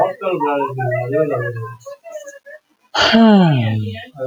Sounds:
Sigh